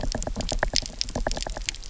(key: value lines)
label: biophony, knock
recorder: SoundTrap 300